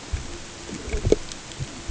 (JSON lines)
{"label": "ambient", "recorder": "HydroMoth"}